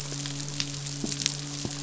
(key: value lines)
label: biophony, midshipman
recorder: SoundTrap 500